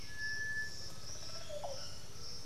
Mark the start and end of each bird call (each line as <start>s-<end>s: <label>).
0.0s-0.6s: White-winged Becard (Pachyramphus polychopterus)
0.0s-2.5s: Piratic Flycatcher (Legatus leucophaius)
0.0s-2.5s: Undulated Tinamou (Crypturellus undulatus)
0.2s-2.2s: Olive Oropendola (Psarocolius bifasciatus)